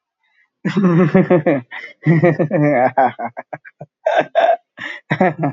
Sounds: Laughter